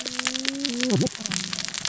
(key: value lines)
label: biophony, cascading saw
recorder: SoundTrap 600 or HydroMoth